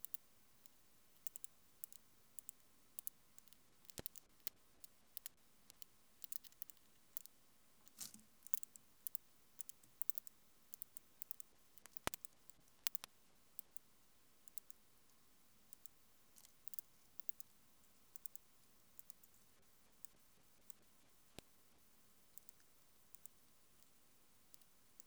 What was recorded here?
Phaneroptera falcata, an orthopteran